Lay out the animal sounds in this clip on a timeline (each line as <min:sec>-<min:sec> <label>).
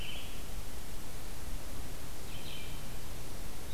0:00.0-0:03.7 Red-eyed Vireo (Vireo olivaceus)